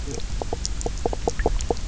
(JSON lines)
{"label": "biophony, knock croak", "recorder": "SoundTrap 300"}